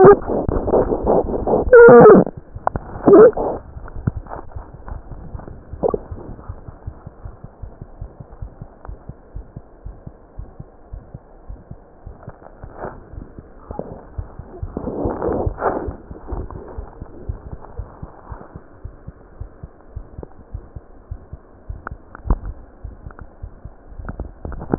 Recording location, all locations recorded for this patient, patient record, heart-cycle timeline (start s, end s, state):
aortic valve (AV)
aortic valve (AV)+pulmonary valve (PV)
#Age: Infant
#Sex: Female
#Height: 54.0 cm
#Weight: 4.7 kg
#Pregnancy status: False
#Murmur: Absent
#Murmur locations: nan
#Most audible location: nan
#Systolic murmur timing: nan
#Systolic murmur shape: nan
#Systolic murmur grading: nan
#Systolic murmur pitch: nan
#Systolic murmur quality: nan
#Diastolic murmur timing: nan
#Diastolic murmur shape: nan
#Diastolic murmur grading: nan
#Diastolic murmur pitch: nan
#Diastolic murmur quality: nan
#Outcome: Normal
#Campaign: 2015 screening campaign
0.00	6.69	unannotated
6.69	6.82	diastole
6.82	6.92	S1
6.92	7.02	systole
7.02	7.11	S2
7.11	7.24	diastole
7.24	7.36	S1
7.36	7.42	systole
7.42	7.52	S2
7.52	7.62	diastole
7.62	7.70	S1
7.70	7.80	systole
7.80	7.88	S2
7.88	8.00	diastole
8.00	8.09	S1
8.09	8.19	systole
8.19	8.24	S2
8.24	8.40	diastole
8.40	8.52	S1
8.52	8.60	systole
8.60	8.68	S2
8.68	8.85	diastole
8.85	8.96	S1
8.96	9.05	systole
9.05	9.15	S2
9.15	9.32	diastole
9.32	9.45	S1
9.45	9.53	systole
9.53	9.64	S2
9.64	9.79	diastole
9.79	9.93	S1
9.93	10.01	systole
10.01	10.11	S2
10.11	10.33	diastole
10.33	10.47	S1
10.47	10.55	systole
10.55	10.65	S2
10.65	10.89	diastole
10.89	11.03	S1
11.03	11.11	systole
11.11	11.22	S2
11.22	11.47	diastole
11.47	11.59	S1
11.59	11.69	systole
11.69	11.79	S2
11.79	12.03	diastole
12.03	12.15	S1
12.15	12.25	systole
12.25	12.37	S2
12.37	12.57	diastole
12.57	12.71	S1
12.71	12.79	systole
12.79	12.89	S2
12.89	13.11	diastole
13.11	13.23	S1
13.23	13.33	systole
13.33	13.43	S2
13.43	13.64	diastole
13.64	13.73	S1
13.73	13.87	systole
13.87	13.96	S2
13.96	14.13	diastole
14.13	14.27	S1
14.27	14.35	systole
14.35	14.47	S2
14.47	14.59	diastole
14.59	14.71	S1
14.71	14.81	systole
14.81	14.90	S2
14.90	15.84	diastole
15.84	15.97	S1
15.97	16.08	systole
16.08	16.14	S2
16.14	16.31	diastole
16.31	16.38	S1
16.38	16.48	systole
16.48	16.55	S2
16.55	16.76	diastole
16.76	16.83	S1
16.83	16.99	systole
16.99	17.08	S2
17.08	17.26	diastole
17.26	17.34	S1
17.34	17.49	systole
17.49	17.58	S2
17.58	17.73	diastole
17.73	17.85	S1
17.85	17.99	systole
17.99	18.07	S2
18.07	18.25	diastole
18.25	18.39	S1
18.39	18.49	systole
18.49	18.59	S2
18.59	18.81	diastole
18.81	18.95	S1
18.95	19.05	systole
19.05	19.15	S2
19.15	19.37	diastole
19.37	19.47	S1
19.47	19.57	systole
19.57	19.73	S2
19.73	19.94	diastole
19.94	20.06	S1
20.06	20.16	systole
20.16	20.29	S2
20.29	20.51	diastole
20.51	20.65	S1
20.65	20.73	systole
20.73	20.85	S2
20.85	21.07	diastole
21.07	21.20	S1
21.20	21.30	systole
21.30	21.38	S2
21.38	21.54	diastole
21.54	24.78	unannotated